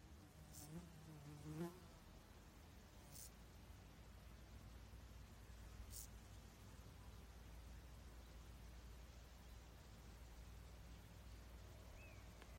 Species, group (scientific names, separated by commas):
Chorthippus brunneus, Orthoptera